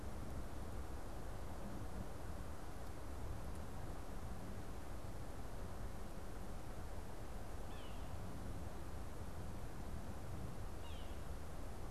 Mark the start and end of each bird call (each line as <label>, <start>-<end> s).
Yellow-bellied Sapsucker (Sphyrapicus varius), 7.7-11.4 s